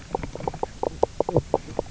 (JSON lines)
{"label": "biophony, knock croak", "recorder": "SoundTrap 300"}